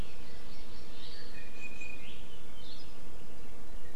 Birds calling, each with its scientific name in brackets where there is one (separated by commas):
Apapane (Himatione sanguinea), Hawaii Amakihi (Chlorodrepanis virens), Iiwi (Drepanis coccinea)